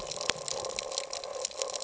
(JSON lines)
{"label": "ambient", "recorder": "HydroMoth"}